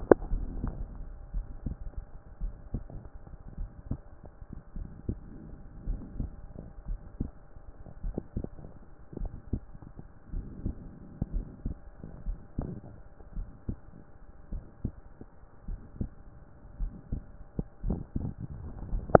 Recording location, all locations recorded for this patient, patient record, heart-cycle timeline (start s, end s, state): pulmonary valve (PV)
pulmonary valve (PV)+tricuspid valve (TV)+mitral valve (MV)
#Age: Child
#Sex: Male
#Height: 148.0 cm
#Weight: 44.4 kg
#Pregnancy status: False
#Murmur: Absent
#Murmur locations: nan
#Most audible location: nan
#Systolic murmur timing: nan
#Systolic murmur shape: nan
#Systolic murmur grading: nan
#Systolic murmur pitch: nan
#Systolic murmur quality: nan
#Diastolic murmur timing: nan
#Diastolic murmur shape: nan
#Diastolic murmur grading: nan
#Diastolic murmur pitch: nan
#Diastolic murmur quality: nan
#Outcome: Normal
#Campaign: 2014 screening campaign
0.00	2.19	unannotated
2.19	2.42	diastole
2.42	2.54	S1
2.54	2.72	systole
2.72	2.84	S2
2.84	3.58	diastole
3.58	3.70	S1
3.70	3.90	systole
3.90	4.00	S2
4.00	4.76	diastole
4.76	4.88	S1
4.88	5.08	systole
5.08	5.18	S2
5.18	5.86	diastole
5.86	6.00	S1
6.00	6.18	systole
6.18	6.30	S2
6.30	6.88	diastole
6.88	7.00	S1
7.00	7.20	systole
7.20	7.30	S2
7.30	8.04	diastole
8.04	8.16	S1
8.16	8.36	systole
8.36	8.46	S2
8.46	9.20	diastole
9.20	9.32	S1
9.32	9.52	systole
9.52	9.62	S2
9.62	10.34	diastole
10.34	10.46	S1
10.46	10.64	systole
10.64	10.76	S2
10.76	11.32	diastole
11.32	11.46	S1
11.46	11.64	systole
11.64	11.76	S2
11.76	12.26	diastole
12.26	12.38	S1
12.38	12.58	systole
12.58	12.72	S2
12.72	13.36	diastole
13.36	13.48	S1
13.48	13.68	systole
13.68	13.78	S2
13.78	14.52	diastole
14.52	14.64	S1
14.64	14.84	systole
14.84	14.94	S2
14.94	15.68	diastole
15.68	15.80	S1
15.80	16.00	systole
16.00	16.10	S2
16.10	16.80	diastole
16.80	16.92	S1
16.92	17.12	systole
17.12	17.22	S2
17.22	17.84	diastole
17.84	19.20	unannotated